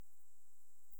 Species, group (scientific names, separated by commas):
Pholidoptera griseoaptera, Orthoptera